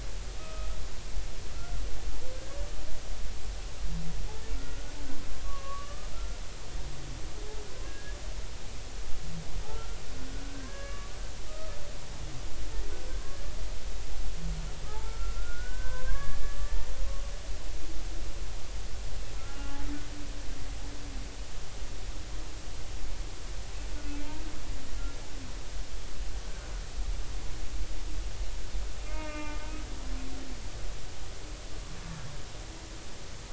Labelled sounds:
0.4	0.7	humpback whale, 1.2 to 2.6 kHz
3.3	4.9	humpback whale, 1.3 to 1.8 kHz
5.4	6.4	humpback whale, 1.0 to 1.4 kHz
7.8	8.2	humpback whale, 1.6 to 1.7 kHz
9.7	10.0	humpback whale, 1.3 to 1.5 kHz
10.4	11.1	humpback whale, 1.1 to 1.8 kHz
11.5	11.8	humpback whale, 1.2 to 1.3 kHz
14.9	16.9	humpback whale, 0.80 to 1.9 kHz
19.4	19.9	humpback whale, 0.80 to 1.5 kHz
29.0	30.3	humpback whale, 0.99 to 2.8 kHz

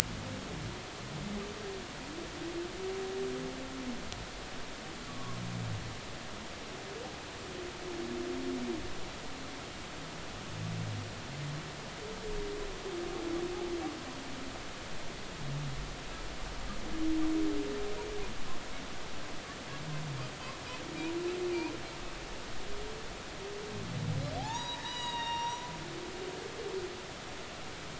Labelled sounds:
5.1	5.4	humpback whale, 0.96 to 1.2 kHz
24.4	25.7	humpback whale, 0.80 to 6.9 kHz

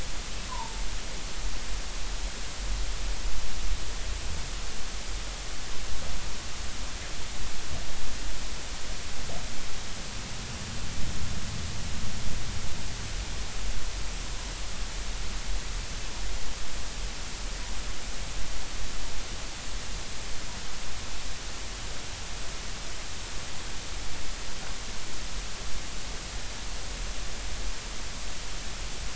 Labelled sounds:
0.5	0.8	humpback whale, 0.83 to 1.1 kHz

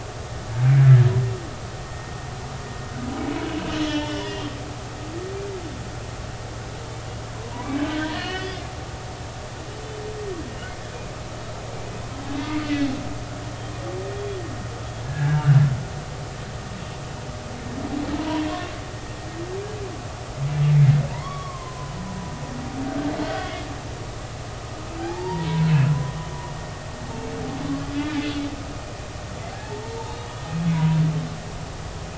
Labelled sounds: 3.8	4.3	humpback whale, 2.9 to 3.4 kHz
7.4	8.6	humpback whale, 0.90 to 5.1 kHz
12.4	12.7	humpback whale, 1.2 to 2.2 kHz
15.1	15.4	humpback whale, 1.5 to 1.8 kHz
18.2	18.4	humpback whale, 0.90 to 1.1 kHz
20.7	22.0	humpback whale, 0.90 to 3.4 kHz
23.2	23.5	humpback whale, 1.4 to 1.6 kHz
25.0	25.9	humpback whale, 0.80 to 4.9 kHz
28.2	28.4	humpback whale, 3.3 to 3.5 kHz
29.8	31.0	humpback whale, 0.93 to 4.3 kHz

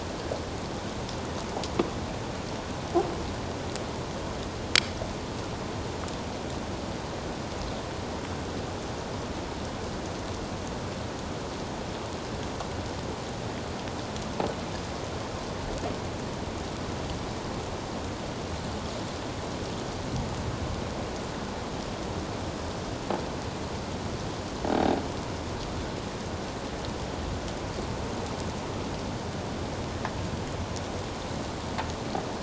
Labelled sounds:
24.7	25.0	croaking sound likely from a nearby submerged object, 0.78 to 3.8 kHz

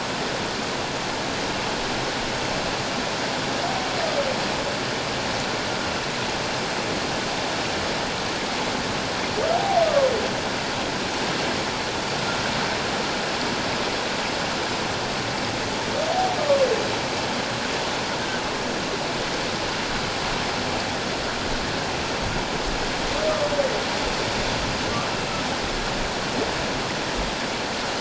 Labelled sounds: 9.5	10.1	humpback whale, 0.78 to 1.3 kHz
16.1	16.6	humpback whale, 0.78 to 1.2 kHz

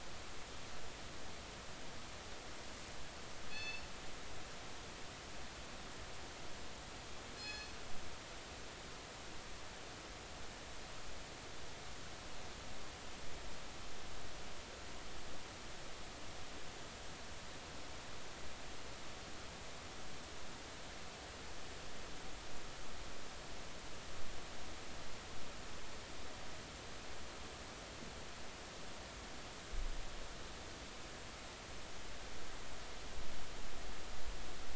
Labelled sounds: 3.5	3.9	killer whale, northern resident, G clan, call N24ii, 2.5 to 5.4 kHz
7.4	7.8	killer whale, northern resident, G clan, call N24ii, 2.5 to 6.9 kHz

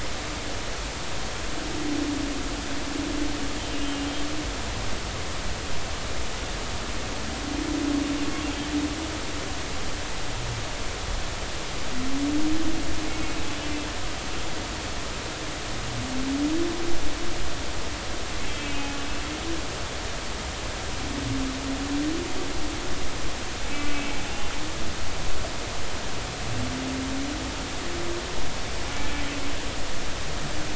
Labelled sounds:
18.5	19.0	humpback whale, 2.5 to 2.7 kHz
23.9	24.2	humpback whale, 2.2 to 2.3 kHz

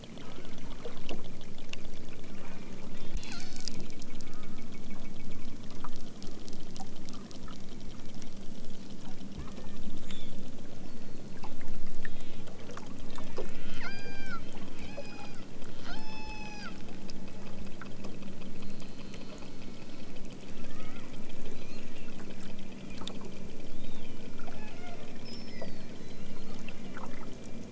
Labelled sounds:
2.2	2.8	killer whale, southern Alaska resident, 1.0 to 2.8 kHz
3.2	3.8	killer whale, southern Alaska resident, 0.78 to 6.4 kHz
4.1	4.8	killer whale, southern Alaska resident, 0.78 to 2.1 kHz
9.4	9.8	killer whale, southern Alaska resident, 0.97 to 3.5 kHz
12.0	12.5	killer whale, southern Alaska resident, 1.5 to 4.6 kHz
13.4	15.5	killer whale, southern Alaska resident, 0.74 to 6.8 kHz
15.8	16.7	killer whale, southern Alaska resident, 0.41 to 8.0 kHz
18.5	20.2	killer whale, southern Alaska resident, 0.83 to 4.7 kHz
20.6	21.2	killer whale, southern Alaska resident, 0.74 to 4.1 kHz

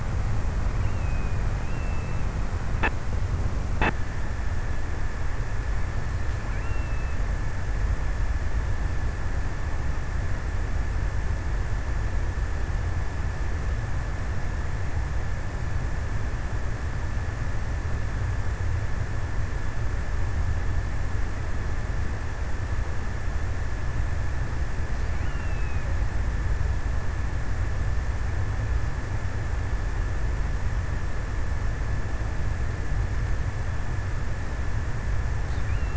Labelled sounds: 0.2	2.3	killer whale, offshore, 2.2 to 3.2 kHz
6.3	7.8	killer whale, offshore, 0.73 to 2.9 kHz
24.4	26.1	killer whale, offshore, 0.94 to 3.1 kHz

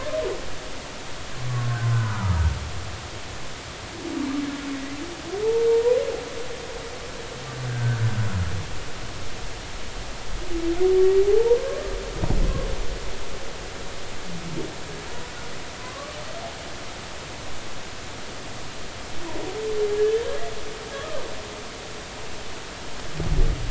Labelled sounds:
1.9	2.3	humpback whale, 0.90 to 1.5 kHz
7.7	8.0	humpback whale, 1.5 to 1.8 kHz
11.3	11.6	humpback whale, 0.80 to 0.99 kHz
15.8	16.2	humpback whale, 0.96 to 1.2 kHz

